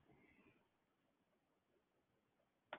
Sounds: Cough